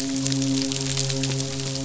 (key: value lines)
label: biophony, midshipman
recorder: SoundTrap 500